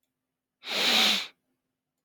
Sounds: Sniff